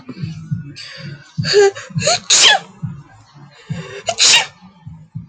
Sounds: Sneeze